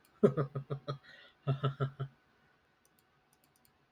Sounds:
Laughter